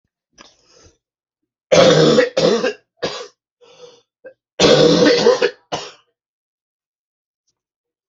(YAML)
expert_labels:
- quality: ok
  cough_type: dry
  dyspnea: false
  wheezing: false
  stridor: false
  choking: false
  congestion: false
  nothing: true
  diagnosis: COVID-19
  severity: mild
age: 50
gender: male
respiratory_condition: false
fever_muscle_pain: false
status: symptomatic